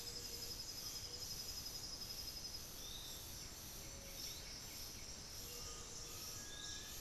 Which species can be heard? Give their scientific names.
Legatus leucophaius, Pachyramphus polychopterus, Crypturellus undulatus, Crypturellus soui